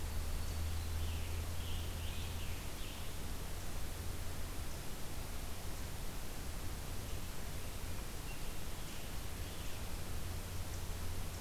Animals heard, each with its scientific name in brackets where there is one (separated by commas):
Scarlet Tanager (Piranga olivacea), Black-throated Green Warbler (Setophaga virens)